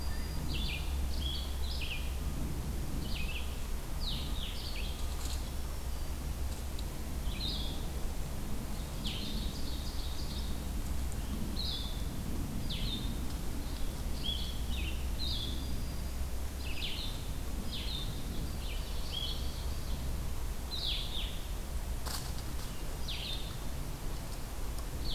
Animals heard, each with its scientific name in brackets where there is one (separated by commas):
Black-throated Green Warbler (Setophaga virens), Blue-headed Vireo (Vireo solitarius), Ovenbird (Seiurus aurocapilla)